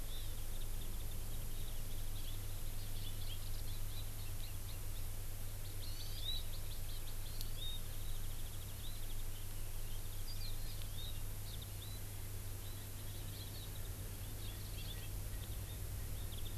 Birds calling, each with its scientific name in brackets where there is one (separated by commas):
Erckel's Francolin (Pternistis erckelii), Warbling White-eye (Zosterops japonicus), Hawaii Amakihi (Chlorodrepanis virens)